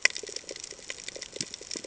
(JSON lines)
{"label": "ambient", "recorder": "HydroMoth"}